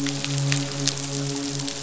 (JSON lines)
{"label": "biophony, midshipman", "recorder": "SoundTrap 500"}